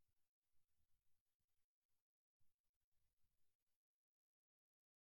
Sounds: Sniff